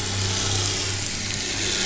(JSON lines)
{"label": "anthrophony, boat engine", "recorder": "SoundTrap 500"}